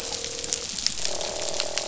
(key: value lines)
label: biophony, croak
recorder: SoundTrap 500